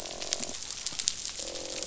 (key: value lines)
label: biophony, croak
recorder: SoundTrap 500